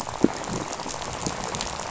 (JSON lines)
{"label": "biophony, rattle", "recorder": "SoundTrap 500"}